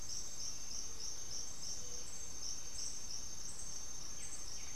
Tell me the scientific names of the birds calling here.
Turdus hauxwelli, Pachyramphus polychopterus